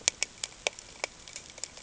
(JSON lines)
{"label": "ambient", "recorder": "HydroMoth"}